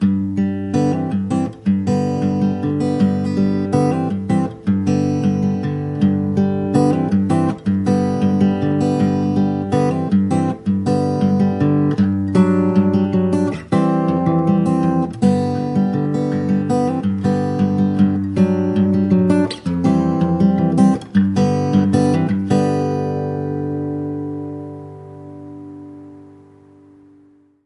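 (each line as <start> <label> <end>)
0.0 A solo acoustic guitar plays continuously with a steady rhythm, gradually softening and fading away toward the end. 27.7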